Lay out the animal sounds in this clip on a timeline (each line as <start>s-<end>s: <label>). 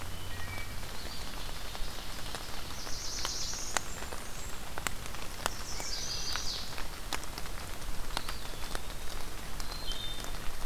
0.0s-0.9s: Wood Thrush (Hylocichla mustelina)
0.8s-2.1s: Eastern Wood-Pewee (Contopus virens)
1.0s-2.9s: Ovenbird (Seiurus aurocapilla)
2.4s-3.8s: Black-throated Blue Warbler (Setophaga caerulescens)
3.5s-4.7s: Blackburnian Warbler (Setophaga fusca)
5.3s-6.8s: Chestnut-sided Warbler (Setophaga pensylvanica)
5.6s-6.3s: Wood Thrush (Hylocichla mustelina)
8.0s-9.2s: Eastern Wood-Pewee (Contopus virens)
9.5s-10.5s: Wood Thrush (Hylocichla mustelina)